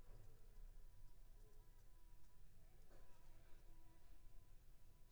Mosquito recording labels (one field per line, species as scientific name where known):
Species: Anopheles squamosus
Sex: female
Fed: unfed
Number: one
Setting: cup